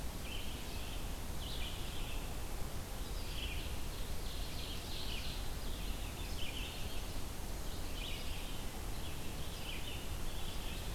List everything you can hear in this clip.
Red-eyed Vireo, Ovenbird, Chestnut-sided Warbler